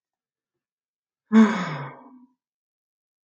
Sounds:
Sigh